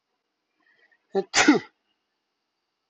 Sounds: Sneeze